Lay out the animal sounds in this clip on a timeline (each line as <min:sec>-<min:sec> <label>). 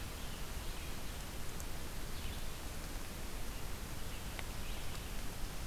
0:00.0-0:05.7 Red-eyed Vireo (Vireo olivaceus)